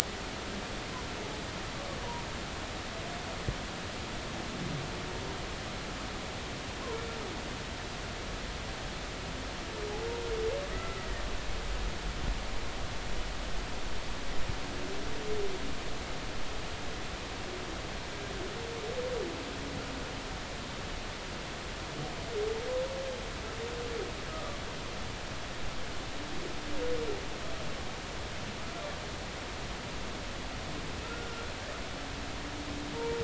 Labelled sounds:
10.7	11.2	humpback whale, 1.2 to 2.0 kHz
24.3	24.6	humpback whale, 1.1 to 1.3 kHz
31.0	31.3	humpback whale, 1.3 to 1.5 kHz
33.0	33.2	humpback whale, 0.86 to 1.0 kHz

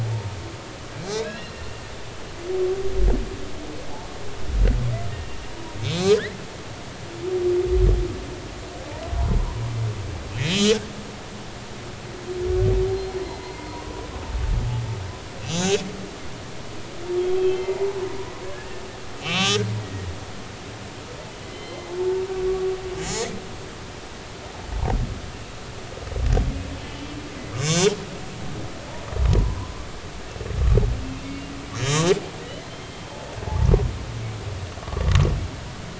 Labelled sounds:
1.0	1.7	humpback whale, 0.80 to 5.5 kHz
5.1	5.4	humpback whale, 2.7 to 2.8 kHz
5.9	7.4	humpback whale, 1.4 to 2.6 kHz
10.5	10.8	humpback whale, 2.8 to 3.6 kHz
12.9	13.9	humpback whale, 0.90 to 4.2 kHz
15.5	15.8	humpback whale, 6.1 to 6.4 kHz
17.4	17.9	humpback whale, 0.80 to 3.3 kHz
18.5	20.1	humpback whale, 1.1 to 6.0 kHz
21.4	21.9	humpback whale, 2.0 to 4.2 kHz
23.0	23.2	humpback whale, 5.2 to 5.4 kHz
27.5	27.9	humpback whale, 2.1 to 6.3 kHz
29.3	29.7	humpback whale, 0.86 to 1.1 kHz
31.7	33.0	humpback whale, 3.1 to 7.2 kHz
34.8	35.1	humpback whale, 1.1 to 1.2 kHz

